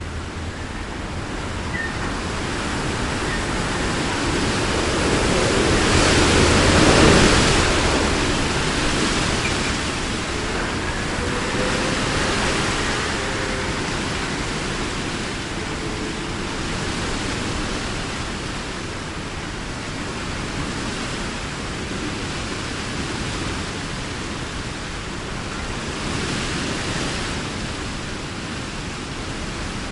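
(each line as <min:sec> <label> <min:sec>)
0:00.0 A loud windy storm in an urban area. 0:29.9
0:03.4 Strong wind blowing loudly during a storm. 0:10.0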